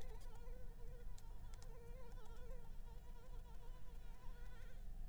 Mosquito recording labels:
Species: Anopheles arabiensis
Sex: female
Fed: unfed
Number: one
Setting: cup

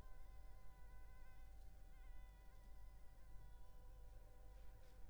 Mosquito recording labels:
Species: Culex pipiens complex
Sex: female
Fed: unfed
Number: one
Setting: cup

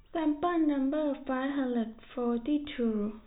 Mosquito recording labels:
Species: no mosquito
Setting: cup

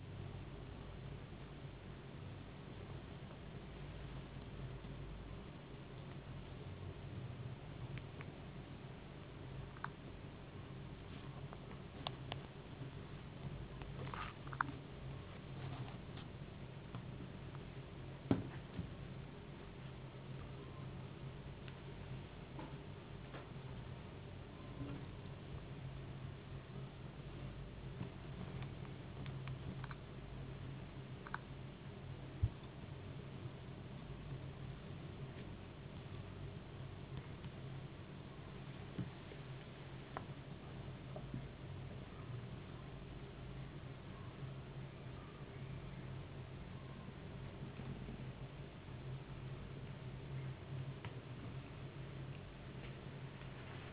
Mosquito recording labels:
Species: no mosquito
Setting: insect culture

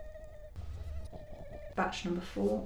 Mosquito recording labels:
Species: Culex quinquefasciatus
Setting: cup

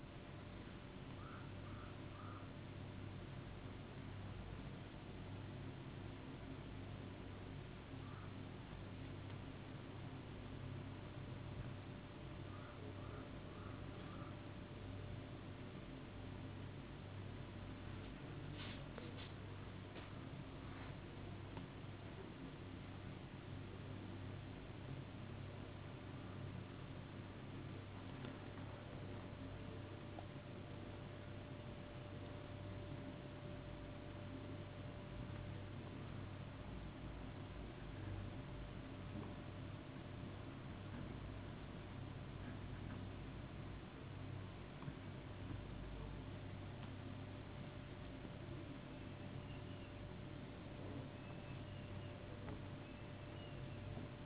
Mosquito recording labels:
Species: no mosquito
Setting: insect culture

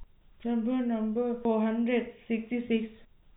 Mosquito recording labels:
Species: no mosquito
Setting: cup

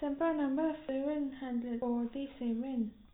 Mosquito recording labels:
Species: no mosquito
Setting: cup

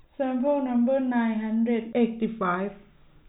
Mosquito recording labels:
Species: no mosquito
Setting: cup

